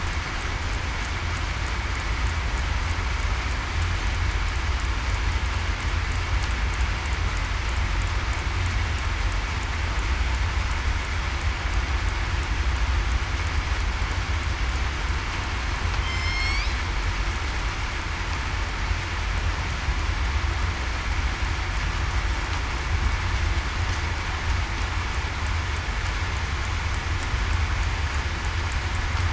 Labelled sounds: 16.0	16.4	killer whale, southern resident, 3.1 to 3.2 kHz

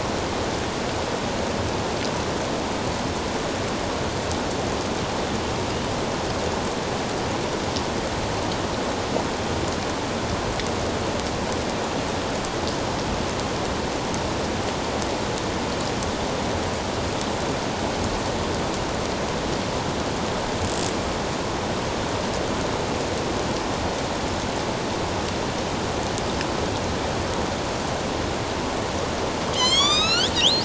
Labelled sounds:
29.5	30.6	killer whale, northern resident, A clan, AB subclan, 1.0 to 7.8 kHz

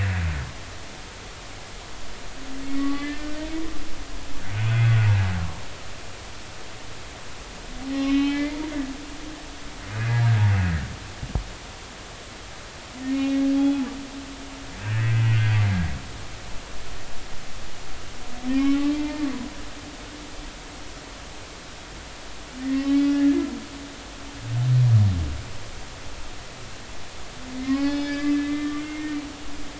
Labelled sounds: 2.8	3.3	humpback whale, 1.1 to 2.1 kHz
8.0	8.6	humpback whale, 2.0 to 4.4 kHz
10.0	10.3	humpback whale, 1.6 to 1.8 kHz
13.1	13.8	humpback whale, 2.4 to 4.8 kHz
14.8	15.6	humpback whale, 1.4 to 2.7 kHz
18.6	19.2	humpback whale, 0.86 to 3.1 kHz
22.6	23.2	humpback whale, 1.0 to 3.5 kHz
27.6	29.1	humpback whale, 0.80 to 5.2 kHz

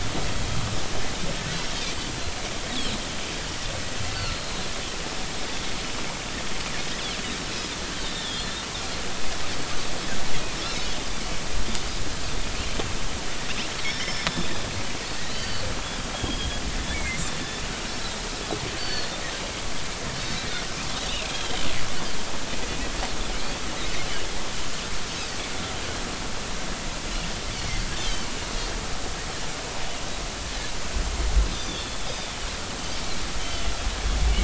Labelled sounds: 4.2	4.7	Pacific white-sided dolphin, 4.1 to 4.6 kHz
8.0	8.7	Pacific white-sided dolphin, 3.2 to 3.8 kHz
13.8	15.6	Pacific white-sided dolphin, 3.5 to 5.6 kHz
16.1	16.6	Pacific white-sided dolphin, 3.1 to 3.4 kHz
16.9	17.2	Pacific white-sided dolphin, 2.0 to 2.3 kHz
18.8	19.1	Pacific white-sided dolphin, 1.7 to 4.7 kHz
21.1	21.7	Pacific white-sided dolphin, 2.4 to 3.4 kHz
31.5	32.0	Pacific white-sided dolphin, 3.2 to 5.2 kHz
33.4	33.7	Pacific white-sided dolphin, 2.9 to 3.2 kHz

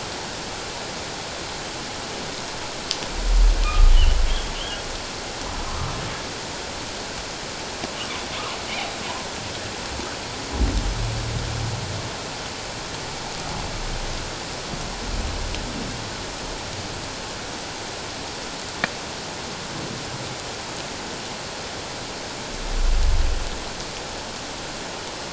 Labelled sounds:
3.6	3.9	humpback whale, 1.1 to 1.3 kHz

